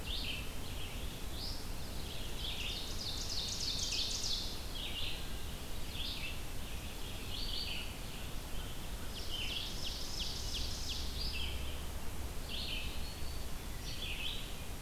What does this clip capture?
Red-eyed Vireo, Ovenbird, Eastern Wood-Pewee